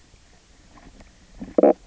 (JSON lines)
{"label": "biophony, knock croak", "recorder": "SoundTrap 300"}